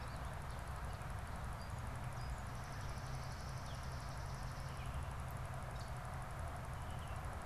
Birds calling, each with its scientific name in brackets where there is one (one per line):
Swamp Sparrow (Melospiza georgiana)